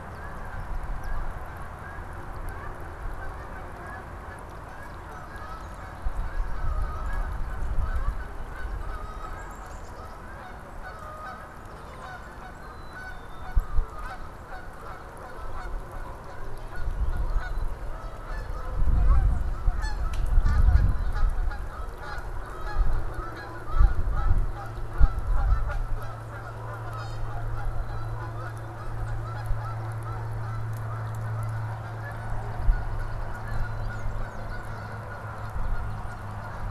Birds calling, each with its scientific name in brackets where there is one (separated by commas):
Black-capped Chickadee (Poecile atricapillus), Tufted Titmouse (Baeolophus bicolor), Canada Goose (Branta canadensis)